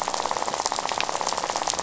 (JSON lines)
{"label": "biophony, rattle", "recorder": "SoundTrap 500"}